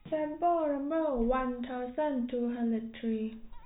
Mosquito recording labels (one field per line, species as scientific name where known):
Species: no mosquito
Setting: cup